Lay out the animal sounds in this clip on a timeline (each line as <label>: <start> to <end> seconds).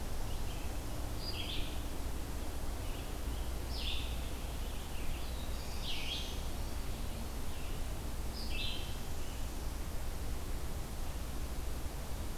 Red-eyed Vireo (Vireo olivaceus): 0.0 to 9.0 seconds
Scarlet Tanager (Piranga olivacea): 2.6 to 6.0 seconds
Black-throated Blue Warbler (Setophaga caerulescens): 5.1 to 6.5 seconds